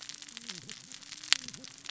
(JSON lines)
{"label": "biophony, cascading saw", "recorder": "SoundTrap 600 or HydroMoth"}